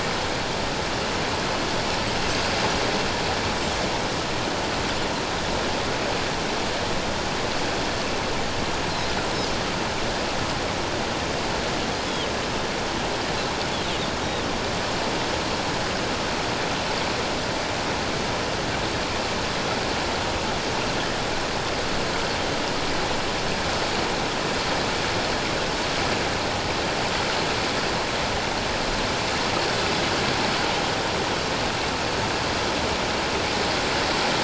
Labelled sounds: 2.3	2.6	Pacific white-sided dolphin, 4.7 to 4.9 kHz

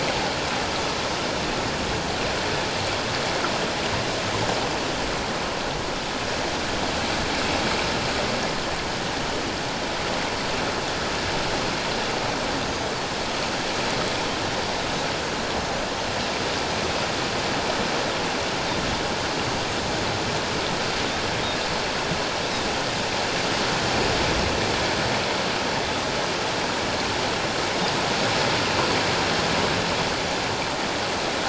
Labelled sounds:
12.6	12.9	Pacific white-sided dolphin, 6.4 to 6.5 kHz

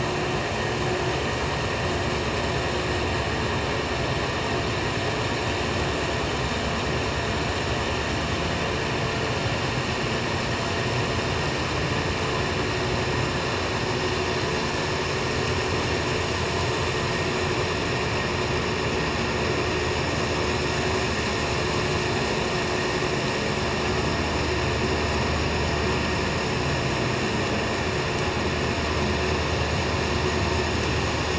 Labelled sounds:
1.1	1.4	vessel noise, 7.5 to 7.6 kHz

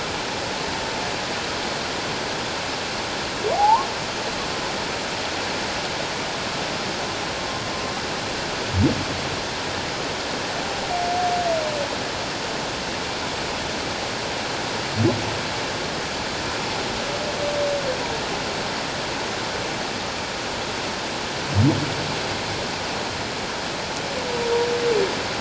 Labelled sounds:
3.5	3.9	humpback whale, 0.78 to 1.2 kHz

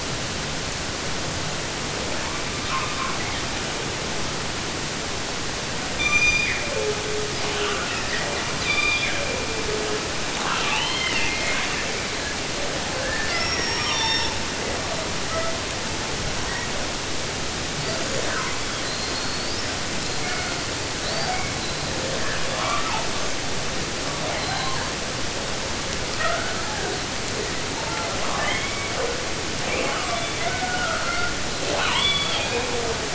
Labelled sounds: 1.8	3.9	killer whale, 0.26 to 5.9 kHz
5.9	8.5	killer whale, 0.16 to 7.8 kHz
8.6	9.7	killer whale, southern resident, 0.50 to 6.7 kHz
10.3	12.0	killer whale, southern resident, 0.50 to 6.1 kHz
12.6	14.5	killer whale, southern resident, 0.32 to 6.4 kHz
14.8	15.6	killer whale, southern resident, J pod, call S42, 0.40 to 6.3 kHz
16.3	16.7	killer whale, 0.91 to 6.0 kHz
17.7	19.7	killer whale, 0.30 to 8.0 kHz
19.9	20.7	killer whale, southern resident, J pod, call S42, 0.32 to 8.0 kHz
20.9	23.3	killer whale, 0.21 to 5.9 kHz
24.0	25.1	killer whale, 0.30 to 8.0 kHz
26.1	27.1	killer whale, 0.14 to 5.7 kHz
27.7	29.3	killer whale, 0.26 to 4.1 kHz
29.6	31.4	killer whale, 0.12 to 8.0 kHz
31.6	33.1	killer whale, southern resident, 0.08 to 8.0 kHz

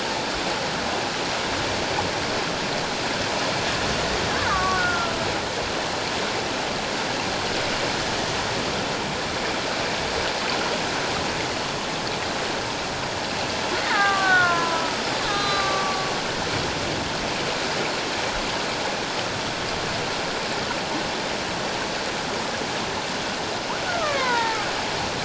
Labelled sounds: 4.5	5.1	killer whale, Bigg's (transient), 1.1 to 1.8 kHz
13.8	15.0	killer whale, Bigg's (transient), 0.78 to 2.2 kHz
15.3	16.1	killer whale, Bigg's (transient), 1.1 to 4.1 kHz
23.9	24.6	killer whale, Bigg's (transient), 0.84 to 2.5 kHz

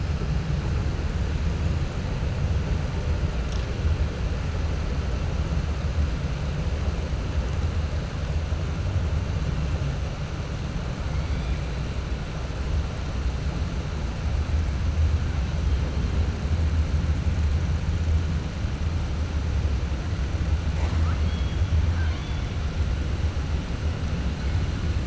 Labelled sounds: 20.7	22.5	killer whale, 0.57 to 4.5 kHz

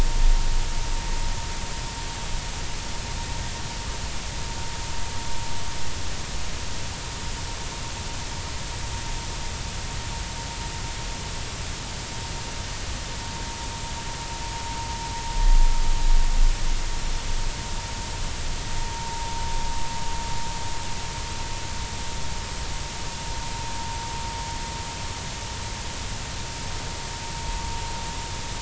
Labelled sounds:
18.8	19.3	vessel noise, 0.86 to 1.1 kHz

